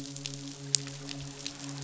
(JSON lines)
{"label": "biophony, midshipman", "recorder": "SoundTrap 500"}